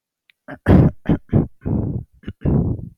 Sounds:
Throat clearing